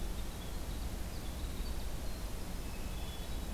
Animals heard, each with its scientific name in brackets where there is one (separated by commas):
Hermit Thrush (Catharus guttatus), Winter Wren (Troglodytes hiemalis)